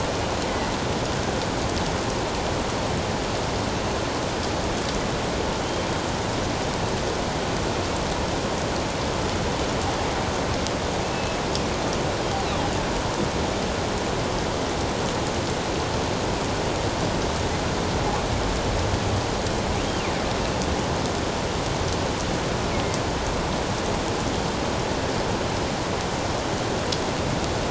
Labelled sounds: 11.0	11.4	killer whale, northern resident, 2.6 to 2.7 kHz

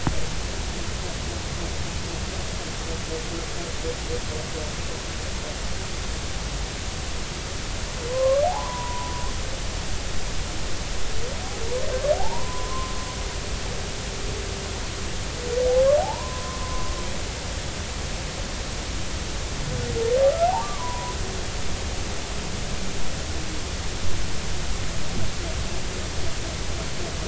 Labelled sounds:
8.1	9.1	humpback whale, 0.80 to 1.2 kHz
12.1	12.9	humpback whale, 0.80 to 1.1 kHz
16.0	16.9	humpback whale, 0.80 to 1.1 kHz
20.6	21.2	humpback whale, 0.93 to 1.2 kHz

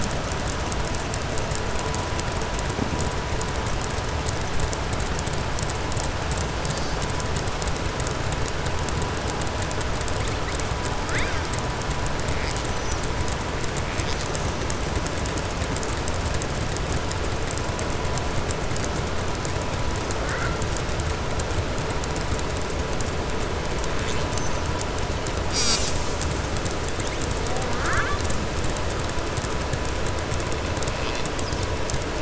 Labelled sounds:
27.5	28.2	killer whale, southern resident, 0.47 to 4.2 kHz

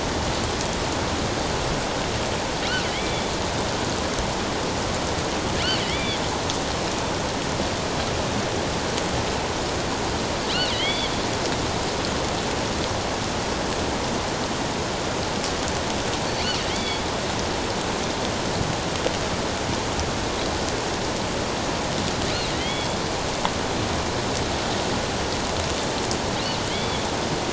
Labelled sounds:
2.9	3.3	killer whale, offshore, 1.9 to 3.5 kHz
5.8	6.2	killer whale, offshore, 1.9 to 3.6 kHz
10.7	11.1	killer whale, offshore, 1.9 to 3.5 kHz
16.7	17.0	killer whale, offshore, 2.0 to 4.7 kHz
22.5	23.0	killer whale, offshore, 1.9 to 3.4 kHz
26.7	27.1	killer whale, offshore, 2.1 to 3.5 kHz

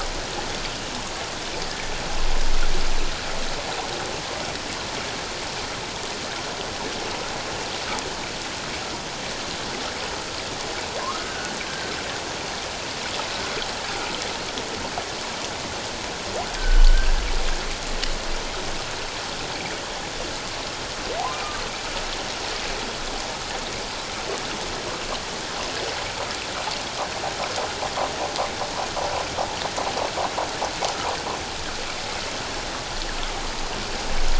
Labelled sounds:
11.0	11.9	humpback whale, 0.94 to 1.6 kHz
16.6	16.9	humpback whale, 1.4 to 1.7 kHz

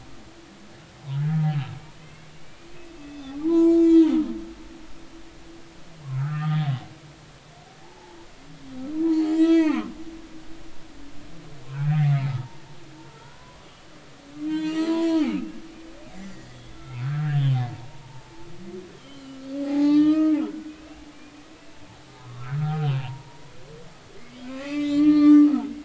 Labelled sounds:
1.2	2.3	humpback whale, 1.6 to 2.8 kHz
3.0	4.2	humpback whale, 0.80 to 7.4 kHz
6.1	6.7	humpback whale, 1.2 to 3.5 kHz
7.8	8.2	humpback whale, 0.80 to 0.96 kHz
9.0	9.9	humpback whale, 0.80 to 6.2 kHz
12.0	15.6	humpback whale, 0.80 to 6.1 kHz
16.3	17.4	humpback whale, 1.2 to 3.5 kHz
17.7	18.5	humpback whale, 0.83 to 1.2 kHz
19.0	21.1	humpback whale, 0.80 to 3.5 kHz
22.2	23.4	humpback whale, 0.80 to 1.2 kHz
24.2	25.7	humpback whale, 1.0 to 5.7 kHz

